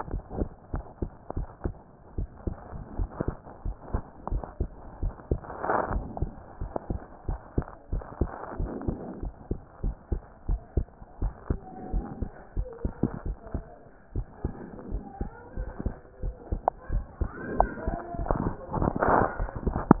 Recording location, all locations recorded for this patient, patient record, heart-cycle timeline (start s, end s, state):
pulmonary valve (PV)
pulmonary valve (PV)+tricuspid valve (TV)+mitral valve (MV)
#Age: Child
#Sex: Male
#Height: 117.0 cm
#Weight: 19.7 kg
#Pregnancy status: False
#Murmur: Absent
#Murmur locations: nan
#Most audible location: nan
#Systolic murmur timing: nan
#Systolic murmur shape: nan
#Systolic murmur grading: nan
#Systolic murmur pitch: nan
#Systolic murmur quality: nan
#Diastolic murmur timing: nan
#Diastolic murmur shape: nan
#Diastolic murmur grading: nan
#Diastolic murmur pitch: nan
#Diastolic murmur quality: nan
#Outcome: Abnormal
#Campaign: 2015 screening campaign
0.00	0.10	unannotated
0.10	0.22	S1
0.22	0.34	systole
0.34	0.48	S2
0.48	0.72	diastole
0.72	0.84	S1
0.84	0.98	systole
0.98	1.08	S2
1.08	1.34	diastole
1.34	1.48	S1
1.48	1.64	systole
1.64	1.78	S2
1.78	2.14	diastole
2.14	2.28	S1
2.28	2.44	systole
2.44	2.58	S2
2.58	2.94	diastole
2.94	3.10	S1
3.10	3.26	systole
3.26	3.38	S2
3.38	3.64	diastole
3.64	3.76	S1
3.76	3.92	systole
3.92	4.04	S2
4.04	4.28	diastole
4.28	4.42	S1
4.42	4.58	systole
4.58	4.72	S2
4.72	5.00	diastole
5.00	5.14	S1
5.14	5.29	systole
5.29	5.39	S2
5.39	5.88	diastole
5.88	6.06	S1
6.06	6.18	systole
6.18	6.32	S2
6.32	6.60	diastole
6.60	6.72	S1
6.72	6.88	systole
6.88	7.02	S2
7.02	7.28	diastole
7.28	7.40	S1
7.40	7.54	systole
7.54	7.64	S2
7.64	7.90	diastole
7.90	8.04	S1
8.04	8.18	systole
8.18	8.32	S2
8.32	8.56	diastole
8.56	8.70	S1
8.70	8.86	systole
8.86	8.98	S2
8.98	9.22	diastole
9.22	9.34	S1
9.34	9.48	systole
9.48	9.58	S2
9.58	9.82	diastole
9.82	9.96	S1
9.96	10.08	systole
10.08	10.22	S2
10.22	10.46	diastole
10.46	10.60	S1
10.60	10.76	systole
10.76	10.90	S2
10.90	11.20	diastole
11.20	11.32	S1
11.32	11.46	systole
11.46	11.62	S2
11.62	11.90	diastole
11.90	12.06	S1
12.06	12.18	systole
12.18	12.30	S2
12.30	12.56	diastole
12.56	12.68	S1
12.68	12.82	systole
12.82	12.96	S2
12.96	13.24	diastole
13.24	13.37	S1
13.37	13.53	systole
13.53	13.64	S2
13.64	14.14	diastole
14.14	14.26	S1
14.26	14.42	systole
14.42	14.56	S2
14.56	14.88	diastole
14.88	15.02	S1
15.02	15.18	systole
15.18	15.32	S2
15.32	15.58	diastole
15.58	15.72	S1
15.72	15.84	systole
15.84	15.94	S2
15.94	16.22	diastole
16.22	16.36	S1
16.36	16.50	systole
16.50	16.64	S2
16.64	16.90	diastole
16.90	17.06	S1
17.06	17.20	systole
17.20	17.32	S2
17.32	17.54	diastole
17.54	17.70	S1
17.70	17.86	systole
17.86	17.98	S2
17.98	18.17	diastole
18.17	20.00	unannotated